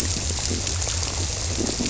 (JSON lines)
{"label": "biophony", "recorder": "SoundTrap 300"}